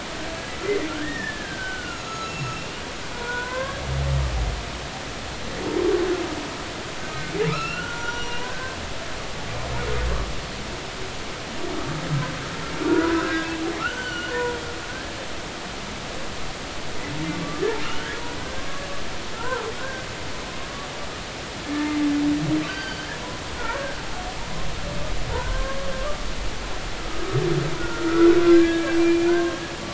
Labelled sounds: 0.9	2.6	humpback whale, 1.2 to 6.9 kHz
3.1	3.8	humpback whale, 0.93 to 2.2 kHz
7.5	8.8	humpback whale, 0.90 to 5.8 kHz
12.9	14.6	humpback whale, 0.93 to 3.1 kHz
17.8	18.1	humpback whale, 2.7 to 3.2 kHz
18.6	18.8	humpback whale, 1.0 to 1.2 kHz
19.3	20.1	humpback whale, 0.83 to 1.7 kHz
22.7	23.0	humpback whale, 1.4 to 4.7 kHz
25.3	26.3	humpback whale, 0.99 to 1.6 kHz
27.0	29.6	humpback whale, 0.90 to 2.5 kHz

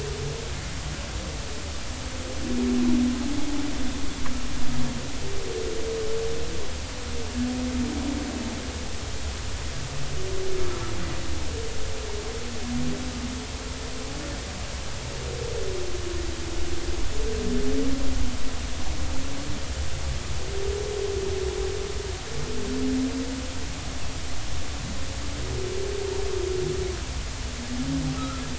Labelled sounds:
28.2	28.4	humpback whale, 1.2 to 1.4 kHz

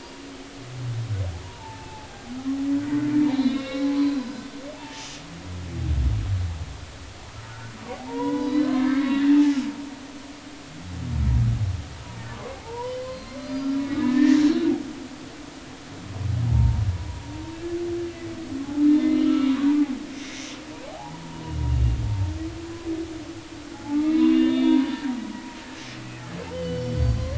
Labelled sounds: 1.4	2.1	humpback whale, 0.80 to 2.7 kHz
3.2	5.1	humpback whale, 0.80 to 5.8 kHz
7.5	9.5	humpback whale, 0.80 to 5.0 kHz
12.3	14.4	humpback whale, 0.80 to 4.9 kHz
16.5	16.8	humpback whale, 0.86 to 1.0 kHz
19.0	19.6	humpback whale, 1.2 to 3.0 kHz
20.8	21.5	humpback whale, 0.80 to 1.0 kHz
23.6	24.9	humpback whale, 0.80 to 3.9 kHz
26.5	27.3	humpback whale, 2.0 to 5.8 kHz

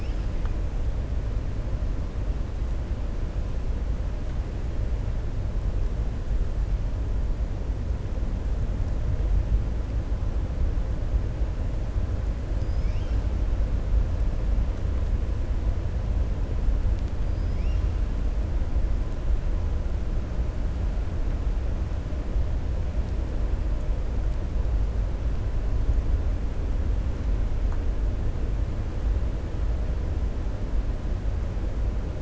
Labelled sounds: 17.2	17.8	killer whale, 4.8 to 5.7 kHz

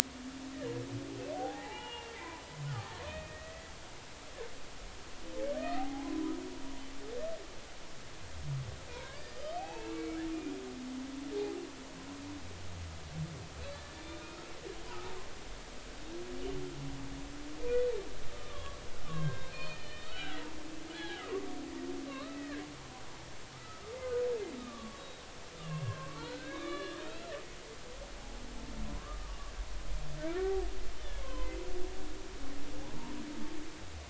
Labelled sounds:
1.3	3.7	humpback whale, 0.80 to 3.1 kHz
5.6	6.4	humpback whale, 0.80 to 2.1 kHz
8.9	10.2	humpback whale, 0.80 to 5.1 kHz
13.6	14.4	humpback whale, 1.2 to 4.2 kHz
14.9	15.2	humpback whale, 0.80 to 0.99 kHz
18.3	18.8	humpback whale, 1.0 to 1.3 kHz
19.1	20.4	humpback whale, 1.2 to 4.4 kHz
20.9	22.6	humpback whale, 0.80 to 4.0 kHz
23.5	24.0	humpback whale, 1.2 to 1.4 kHz
24.6	27.2	humpback whale, 0.99 to 4.3 kHz
28.9	30.5	humpback whale, 0.93 to 1.6 kHz
31.2	31.5	humpback whale, 0.90 to 1.1 kHz

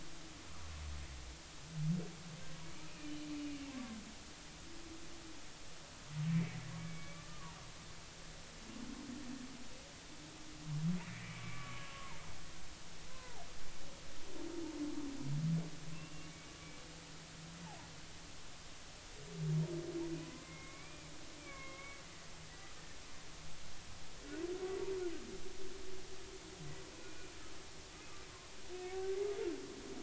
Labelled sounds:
3.0	4.0	humpback whale, 1.0 to 3.1 kHz
6.3	7.6	humpback whale, 0.86 to 2.4 kHz
11.4	12.4	humpback whale, 0.86 to 2.5 kHz
13.1	13.5	humpback whale, 0.80 to 1.6 kHz
15.9	16.3	humpback whale, 2.6 to 2.8 kHz
20.2	21.1	humpback whale, 0.96 to 2.5 kHz
21.4	22.0	humpback whale, 1.0 to 2.4 kHz
22.5	22.7	humpback whale, 1.8 to 2.0 kHz
26.9	27.3	humpback whale, 2.3 to 2.6 kHz

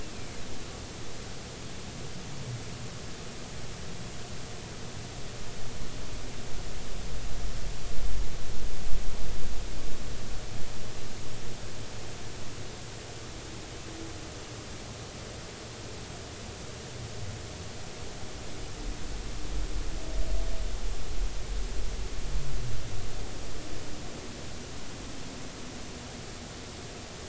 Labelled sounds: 0.1	0.4	humpback whale, 2.0 to 2.6 kHz

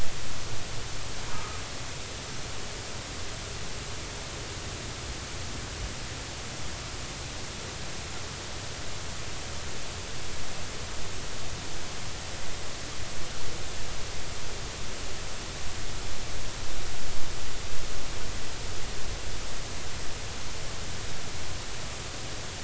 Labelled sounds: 1.3	1.6	humpback whale, 1.2 to 1.3 kHz

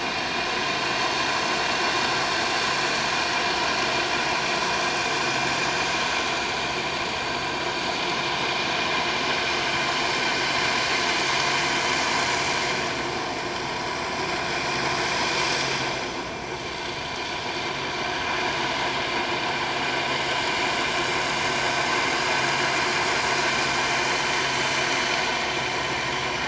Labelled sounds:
24.5	24.9	vessel noise, 5.9 to 6.2 kHz

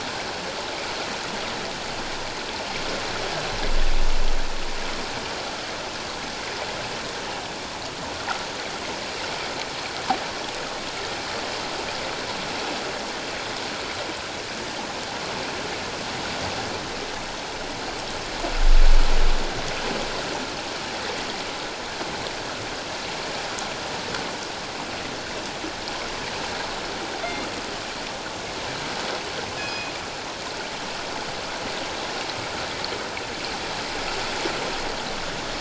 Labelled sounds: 27.2	27.5	killer whale, northern resident, G clan, call N24ii, 3.4 to 3.6 kHz
29.6	29.9	killer whale, northern resident, G clan, call N24ii, 2.4 to 5.1 kHz

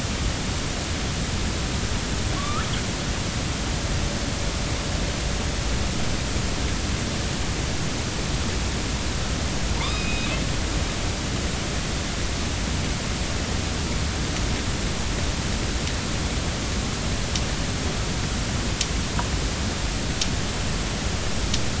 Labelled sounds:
2.3	2.7	killer whale, northern resident, A clan, AB subclan, 1.0 to 1.5 kHz
9.8	10.3	killer whale, northern resident, A clan, AB subclan, call N05, 0.86 to 3.8 kHz

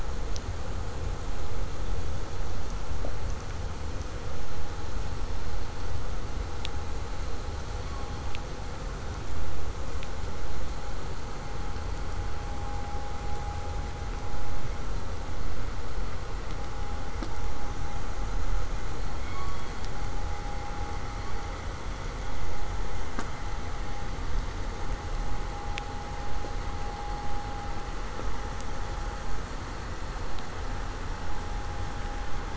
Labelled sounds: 18.9	19.9	killer whale, southern resident, K pod, call S16, 1.0 to 4.6 kHz

